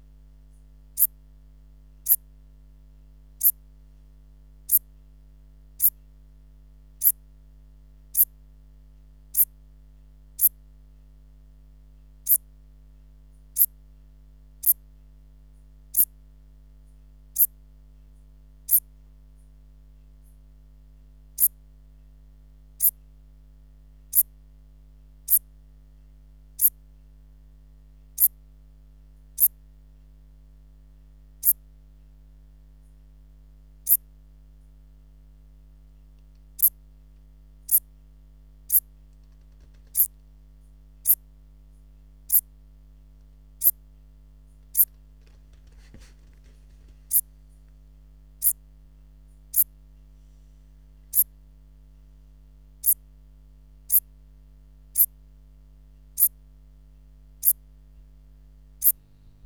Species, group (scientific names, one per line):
Eupholidoptera uvarovi
Orthoptera